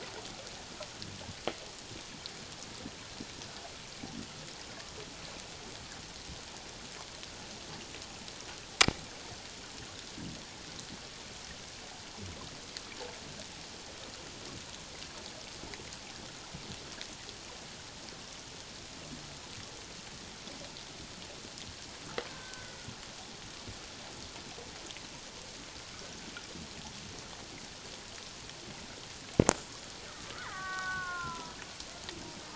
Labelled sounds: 22.3	22.8	killer whale, Bigg's (transient), 1.4 to 2.1 kHz
30.3	31.6	killer whale, Bigg's (transient), 0.91 to 2.3 kHz

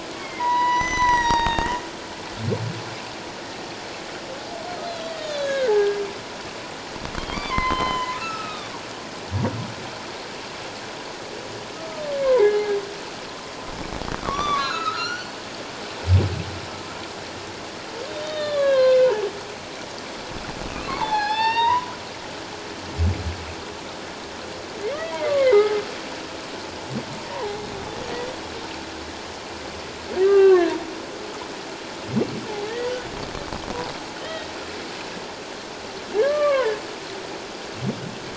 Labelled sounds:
0.1	1.7	humpback whale, 0.88 to 7.9 kHz
4.8	6.0	humpback whale, 1.5 to 4.2 kHz
7.3	8.7	humpback whale, 0.94 to 4.2 kHz
12.2	12.7	humpback whale, 0.78 to 2.2 kHz
14.2	15.4	humpback whale, 1.0 to 6.1 kHz
18.2	19.1	humpback whale, 0.97 to 4.3 kHz
20.7	21.9	humpback whale, 0.78 to 5.3 kHz
25.3	25.8	humpback whale, 0.78 to 2.2 kHz
27.3	27.6	humpback whale, 0.78 to 1.1 kHz
30.2	30.7	humpback whale, 1.0 to 2.8 kHz
32.7	33.0	humpback whale, 1.7 to 2.0 kHz
34.2	34.5	humpback whale, 1.8 to 3.2 kHz
36.1	36.8	humpback whale, 0.88 to 2.4 kHz

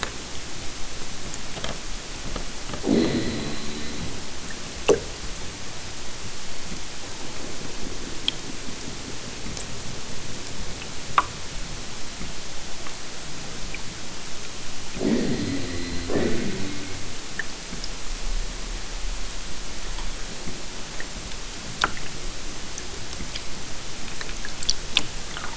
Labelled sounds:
2.8	4.2	killer whale, southern Alaska resident, 0 to 5.0 kHz
14.9	17.2	killer whale, southern Alaska resident, 0 to 5.6 kHz

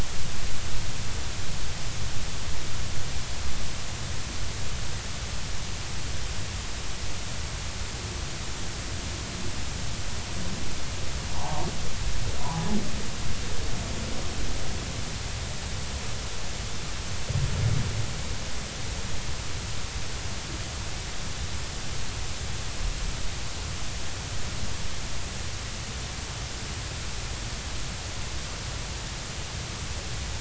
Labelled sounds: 11.3	12.6	humpback whale, 0.80 to 1.2 kHz

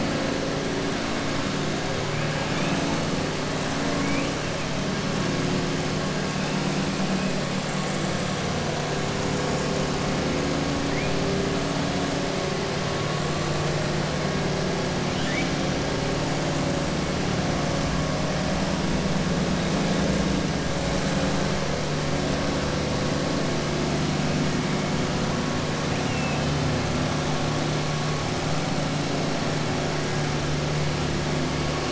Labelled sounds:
3.8	4.3	killer whale, southern resident, 1.1 to 3.1 kHz
15.0	15.5	killer whale, southern resident, 1.4 to 3.9 kHz

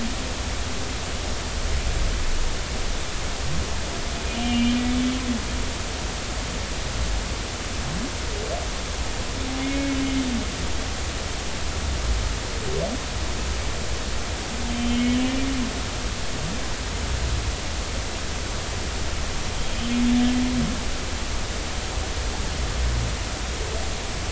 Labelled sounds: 4.4	4.8	humpback whale, 2.3 to 3.2 kHz
9.6	10.0	humpback whale, 2.1 to 2.3 kHz
14.7	15.2	humpback whale, 2.1 to 3.2 kHz

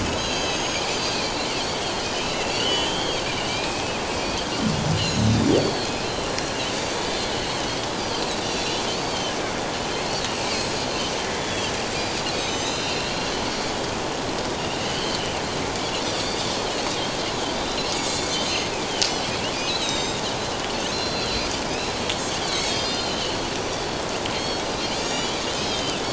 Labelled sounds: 0.0	6.6	Pacific white-sided dolphin, 1.8 to 6.9 kHz
6.9	7.6	Pacific white-sided dolphin, 3.5 to 4.4 kHz
7.9	9.4	Pacific white-sided dolphin, 2.9 to 5.1 kHz
10.1	11.1	Pacific white-sided dolphin, 4.2 to 7.8 kHz
11.4	13.7	Pacific white-sided dolphin, 2.7 to 7.7 kHz
14.6	15.3	Pacific white-sided dolphin, 2.7 to 3.3 kHz
16.2	16.5	Pacific white-sided dolphin, 3.4 to 4.8 kHz
17.5	18.7	Pacific white-sided dolphin, 2.2 to 7.9 kHz
19.5	20.2	Pacific white-sided dolphin, 2.4 to 7.7 kHz
20.9	22.0	Pacific white-sided dolphin, 3.4 to 5.5 kHz
22.4	23.3	Pacific white-sided dolphin, 2.8 to 6.5 kHz
24.4	26.0	Pacific white-sided dolphin, 2.6 to 7.0 kHz

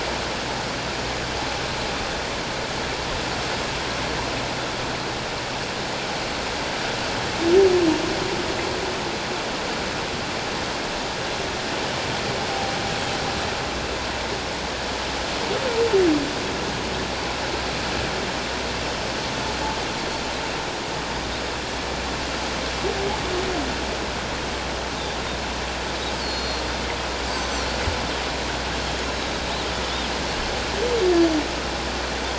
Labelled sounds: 12.5	12.8	humpback whale, 0.78 to 0.84 kHz
26.2	26.6	Pacific white-sided dolphin, 4.1 to 7.2 kHz
29.0	29.3	Pacific white-sided dolphin, 3.8 to 4.1 kHz

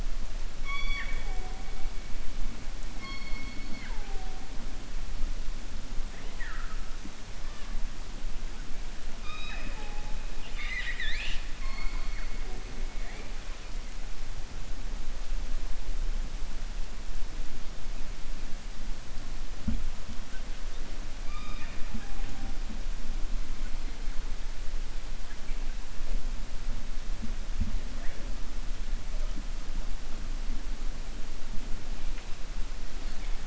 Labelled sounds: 0.5	1.6	killer whale, 0.41 to 5.7 kHz
11.5	12.3	killer whale, 0.61 to 2.3 kHz

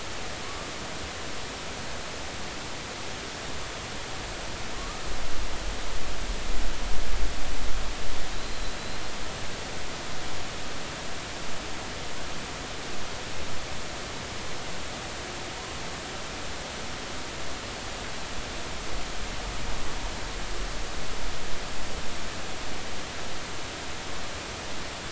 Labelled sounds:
4.8	5.1	killer whale, Bigg's (transient), 1.0 to 1.3 kHz
8.3	9.0	killer whale, Bigg's (transient), 3.8 to 4.2 kHz

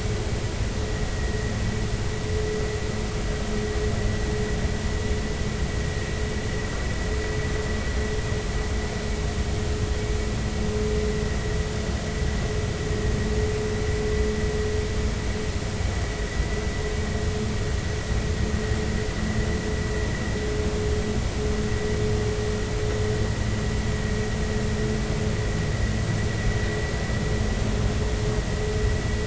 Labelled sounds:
1.1	1.5	vessel noise, 1.8 to 2.0 kHz

